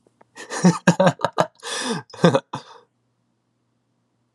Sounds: Laughter